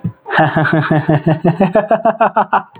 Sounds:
Laughter